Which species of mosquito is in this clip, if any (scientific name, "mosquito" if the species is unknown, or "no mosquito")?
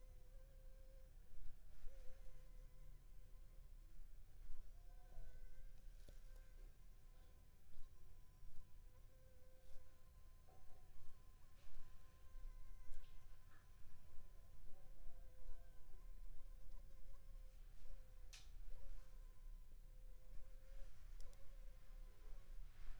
Anopheles funestus s.s.